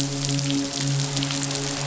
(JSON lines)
{"label": "biophony, midshipman", "recorder": "SoundTrap 500"}